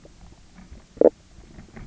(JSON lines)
{"label": "biophony, knock croak", "recorder": "SoundTrap 300"}